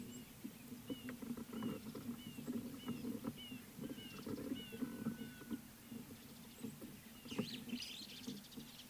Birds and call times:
Red-fronted Barbet (Tricholaema diademata): 2.9s, 5.3s

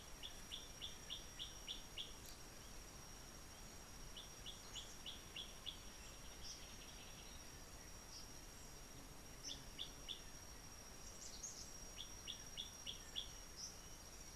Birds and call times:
Gray Apalis (Apalis cinerea): 1.1s, 12.5s
Eastern Double-collared Sunbird (Cinnyris mediocris): 11.3s

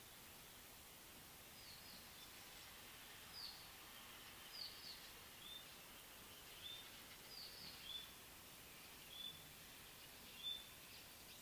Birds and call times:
Mocking Cliff-Chat (Thamnolaea cinnamomeiventris): 3.5s
White-browed Robin-Chat (Cossypha heuglini): 6.8s

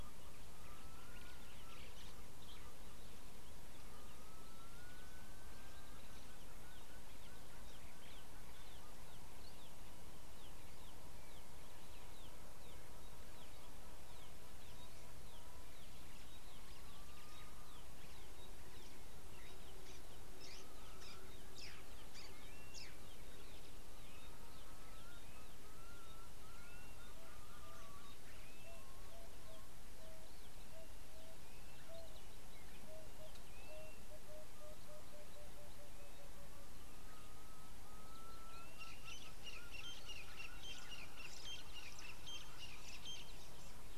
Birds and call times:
White-browed Sparrow-Weaver (Plocepasser mahali): 21.6s
Blue-naped Mousebird (Urocolius macrourus): 22.7s, 28.6s
Pygmy Batis (Batis perkeo): 26.2s
Emerald-spotted Wood-Dove (Turtur chalcospilos): 34.4s
Crested Francolin (Ortygornis sephaena): 41.2s

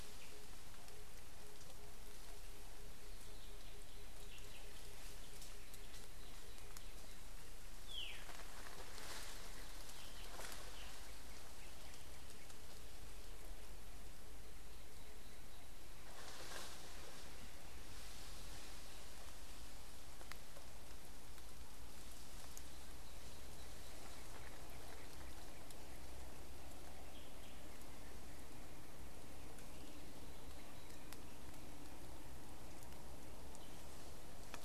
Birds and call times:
Tambourine Dove (Turtur tympanistria): 2.8s
Waller's Starling (Onychognathus walleri): 8.0s

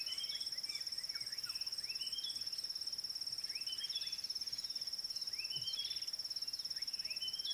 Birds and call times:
Red-backed Scrub-Robin (Cercotrichas leucophrys): 2.0s, 5.6s

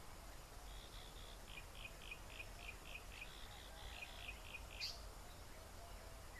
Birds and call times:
Yellow-breasted Apalis (Apalis flavida): 2.4s
African Paradise-Flycatcher (Terpsiphone viridis): 4.9s

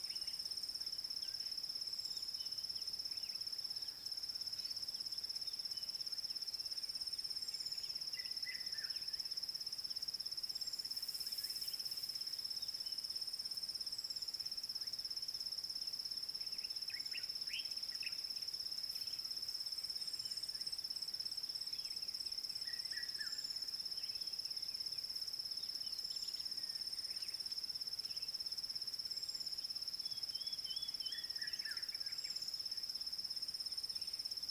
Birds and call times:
Red-chested Cuckoo (Cuculus solitarius): 8.5s, 23.0s
Common Bulbul (Pycnonotus barbatus): 17.6s

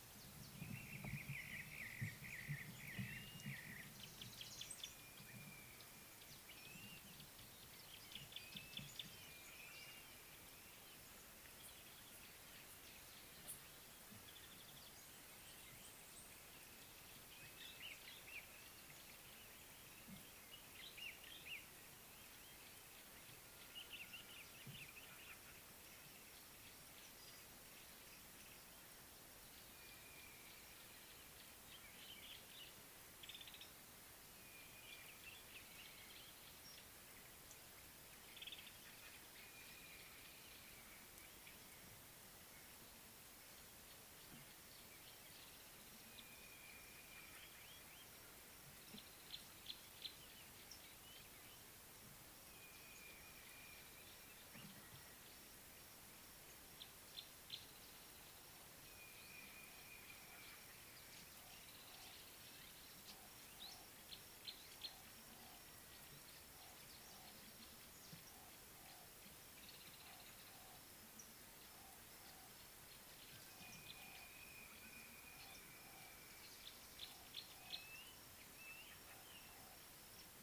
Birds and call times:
Brown-crowned Tchagra (Tchagra australis): 2.0s
Gray-backed Camaroptera (Camaroptera brevicaudata): 8.5s, 49.6s, 64.4s, 77.3s
Common Bulbul (Pycnonotus barbatus): 24.2s
African Thrush (Turdus pelios): 33.5s

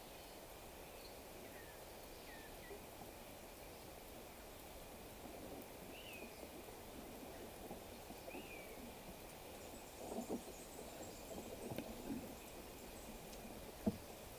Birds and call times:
African Emerald Cuckoo (Chrysococcyx cupreus): 2.3s
Common Buzzard (Buteo buteo): 6.1s
Eastern Double-collared Sunbird (Cinnyris mediocris): 10.6s

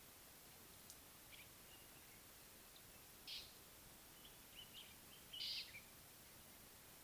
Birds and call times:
Slate-colored Boubou (Laniarius funebris): 3.2s, 5.3s
Common Bulbul (Pycnonotus barbatus): 4.6s

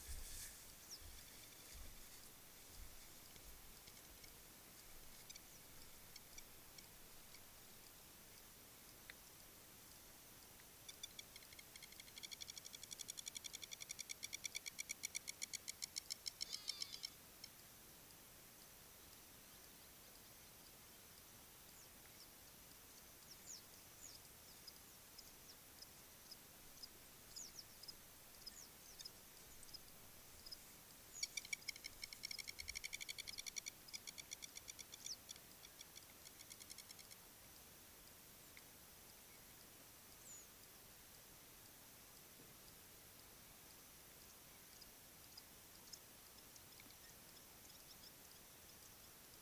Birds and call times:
Long-toed Lapwing (Vanellus crassirostris): 14.4s, 33.3s
Hadada Ibis (Bostrychia hagedash): 16.7s

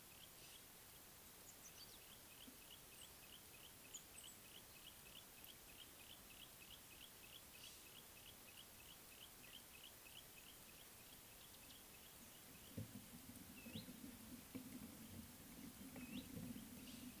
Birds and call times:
Yellow-breasted Apalis (Apalis flavida): 8.2s
Red-backed Scrub-Robin (Cercotrichas leucophrys): 13.7s

